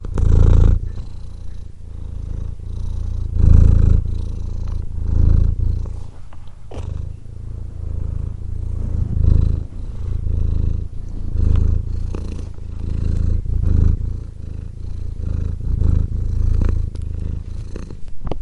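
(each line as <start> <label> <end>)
0.0 A cat is purring. 18.4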